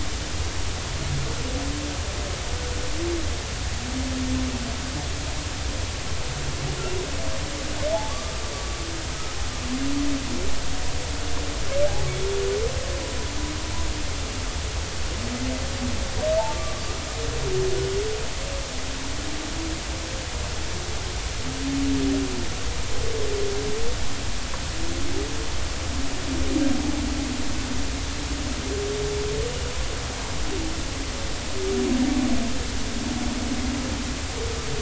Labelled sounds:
16.5	16.8	humpback whale, 1.1 to 1.2 kHz

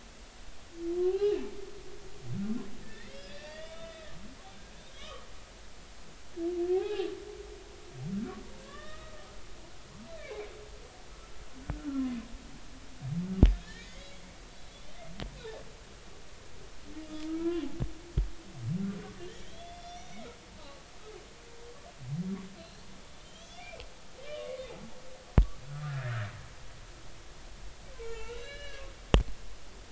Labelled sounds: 1.0	1.4	humpback whale, 0.80 to 3.4 kHz
2.8	4.1	humpback whale, 1.7 to 5.1 kHz
5.0	5.3	humpback whale, 1.1 to 3.2 kHz
6.7	7.1	humpback whale, 0.80 to 0.90 kHz
8.6	9.2	humpback whale, 1.0 to 3.8 kHz
10.2	10.5	humpback whale, 2.1 to 2.6 kHz
13.6	14.1	humpback whale, 1.6 to 3.4 kHz
17.0	17.6	humpback whale, 0.93 to 5.0 kHz
19.2	20.8	humpback whale, 1.1 to 6.0 kHz
22.6	24.7	humpback whale, 1.0 to 6.2 kHz
25.7	26.3	humpback whale, 1.2 to 2.0 kHz
27.9	28.9	humpback whale, 0.83 to 4.1 kHz

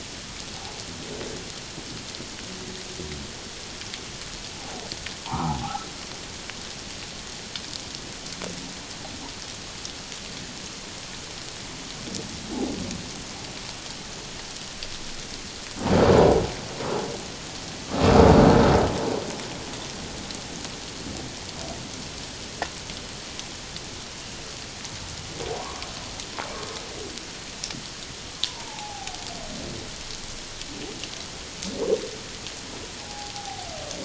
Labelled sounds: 0.5	0.8	humpback whale, 0.78 to 0.97 kHz
4.5	5.9	humpback whale, 0.78 to 1.5 kHz
16.1	16.4	humpback whale, 0.84 to 1.1 kHz
25.6	25.9	humpback whale, 0.91 to 1.2 kHz
28.4	29.2	humpback whale, 0.78 to 1.1 kHz
33.0	33.7	humpback whale, 0.78 to 0.97 kHz

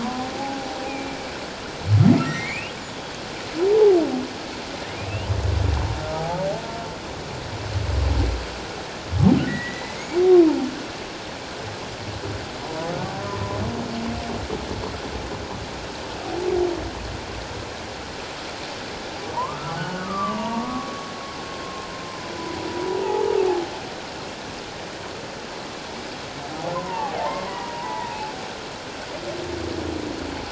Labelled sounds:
0.0	1.2	humpback whale, 0.78 to 2.5 kHz
2.2	2.7	humpback whale, 1.8 to 3.0 kHz
3.7	4.0	humpback whale, 0.78 to 1.0 kHz
5.0	6.5	humpback whale, 0.78 to 3.1 kHz
9.5	10.0	humpback whale, 1.8 to 2.1 kHz
12.6	12.9	humpback whale, 0.94 to 1.0 kHz
19.3	21.1	humpback whale, 0.88 to 1.5 kHz
21.6	22.7	humpback whale, 0.91 to 1.1 kHz
23.0	23.4	humpback whale, 0.78 to 0.97 kHz
26.7	28.1	humpback whale, 0.78 to 2.0 kHz

